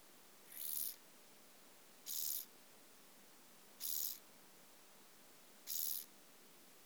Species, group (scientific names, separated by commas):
Chorthippus brunneus, Orthoptera